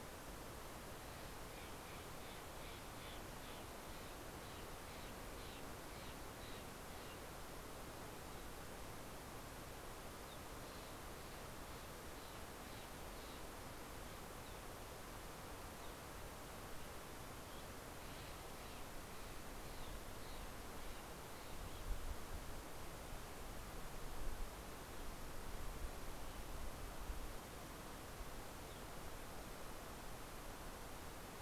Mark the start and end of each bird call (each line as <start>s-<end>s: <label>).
1.0s-22.2s: Steller's Jay (Cyanocitta stelleri)